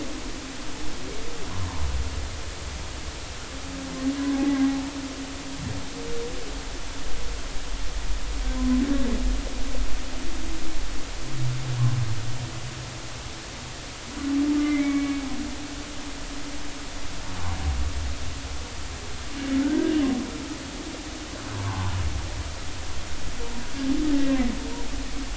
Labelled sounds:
8.5	8.8	humpback whale, 0.96 to 1.1 kHz
14.6	15.2	humpback whale, 2.0 to 2.4 kHz
19.6	19.9	humpback whale, 1.4 to 1.7 kHz
21.6	22.0	humpback whale, 0.80 to 1.2 kHz

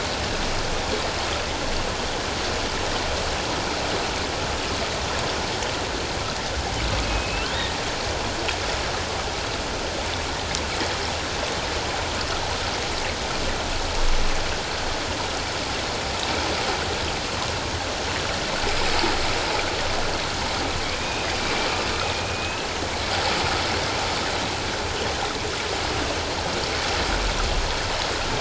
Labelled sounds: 7.0	7.7	humpback whale, 2.5 to 3.8 kHz
21.0	21.3	humpback whale, 2.4 to 3.8 kHz
22.3	22.7	humpback whale, 2.4 to 2.7 kHz

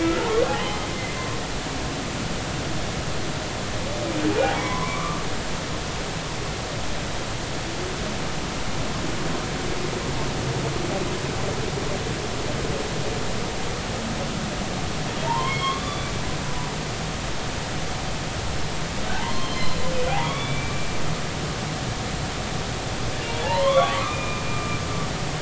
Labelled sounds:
0.2	0.4	humpback whale, 0.80 to 1.2 kHz
4.5	5.2	humpback whale, 0.90 to 2.4 kHz
15.3	16.1	humpback whale, 0.83 to 3.6 kHz
19.1	19.9	humpback whale, 0.80 to 5.3 kHz
20.2	20.9	humpback whale, 1.1 to 3.5 kHz
23.4	24.8	humpback whale, 0.80 to 3.7 kHz

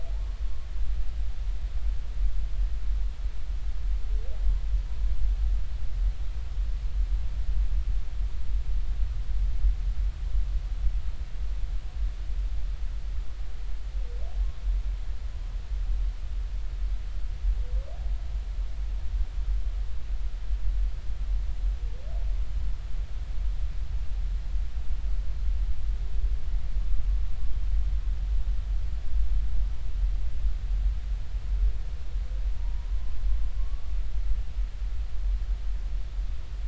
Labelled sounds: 33.5	33.8	humpback whale, 1.0 to 1.2 kHz

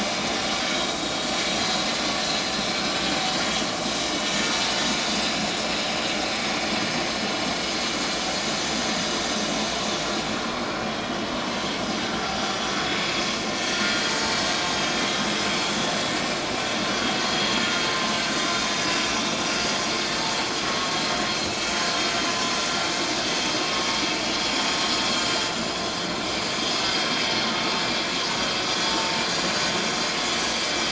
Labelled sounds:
13.7	14.4	vessel noise, 0.84 to 1.5 kHz
18.4	18.7	vessel noise, 3.5 to 3.7 kHz
19.6	19.8	vessel noise, 6.5 to 6.7 kHz
27.0	27.4	vessel noise, 7.7 to 7.9 kHz
28.9	29.7	vessel noise, 0.84 to 6.6 kHz

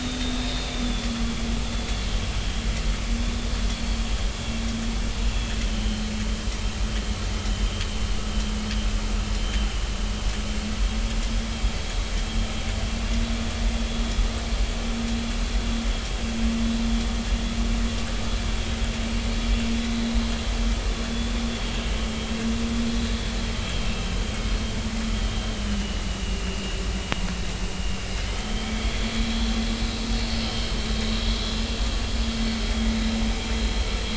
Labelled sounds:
0.8	1.5	vessel noise, 3.1 to 3.6 kHz
5.3	6.0	vessel noise, 2.6 to 3.2 kHz
21.1	21.4	vessel noise, 3.4 to 3.5 kHz
25.7	26.8	vessel noise, 2.7 to 3.0 kHz
28.3	29.2	vessel noise, 2.1 to 3.5 kHz
30.4	31.6	vessel noise, 3.0 to 3.5 kHz

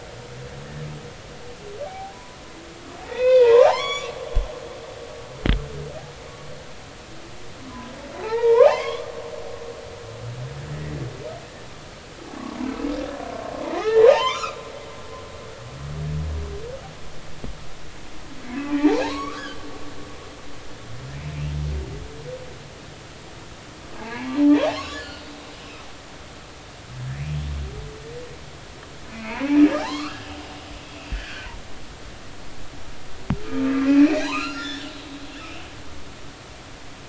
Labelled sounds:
1.8	2.4	humpback whale, 0.80 to 1.1 kHz
3.0	4.6	humpback whale, 0.80 to 7.0 kHz
8.2	9.1	humpback whale, 0.80 to 3.6 kHz
13.8	15.4	humpback whale, 0.80 to 4.2 kHz
18.6	19.6	humpback whale, 0.80 to 7.9 kHz
24.0	25.0	humpback whale, 0.80 to 6.9 kHz
29.8	30.6	humpback whale, 0.80 to 4.4 kHz
31.1	31.5	humpback whale, 1.4 to 2.0 kHz
33.5	34.9	humpback whale, 0.80 to 5.6 kHz
35.3	35.6	humpback whale, 2.4 to 2.9 kHz

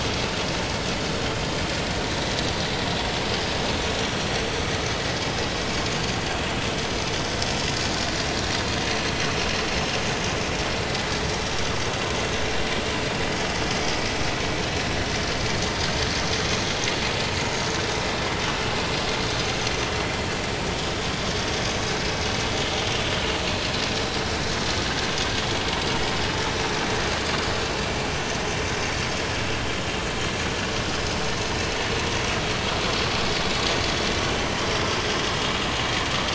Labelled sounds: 2.2	2.9	vessel noise, 3.8 to 4.0 kHz
3.3	3.5	vessel noise, 4.8 to 5.0 kHz

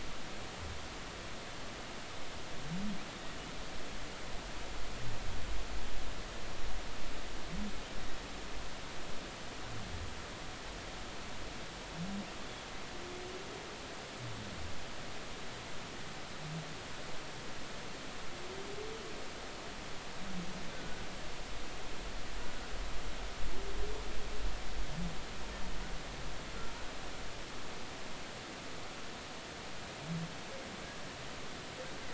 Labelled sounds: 20.7	21.0	humpback whale, 1.4 to 1.6 kHz

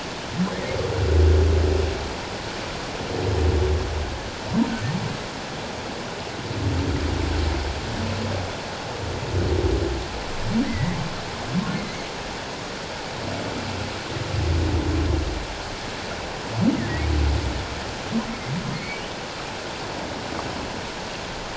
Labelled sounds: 10.7	11.0	humpback whale, 1.8 to 2.2 kHz
18.7	19.0	humpback whale, 2.1 to 2.3 kHz

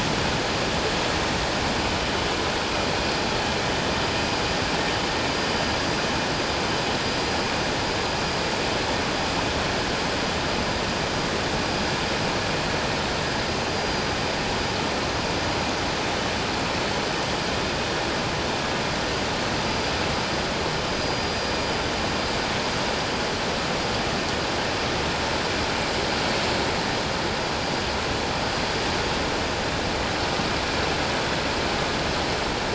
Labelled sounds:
21.0	21.3	vessel noise, 4.7 to 4.9 kHz

